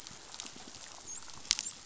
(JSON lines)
{"label": "biophony, dolphin", "recorder": "SoundTrap 500"}